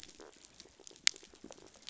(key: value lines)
label: biophony, rattle response
recorder: SoundTrap 500